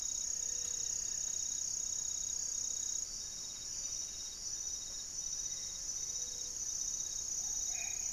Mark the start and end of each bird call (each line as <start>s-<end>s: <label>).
0.0s-8.1s: Amazonian Trogon (Trogon ramonianus)
0.2s-1.1s: Gray-fronted Dove (Leptotila rufaxilla)
0.2s-1.5s: unidentified bird
3.4s-8.1s: Buff-breasted Wren (Cantorchilus leucotis)
5.9s-6.8s: Gray-fronted Dove (Leptotila rufaxilla)
7.4s-8.1s: Black-faced Antthrush (Formicarius analis)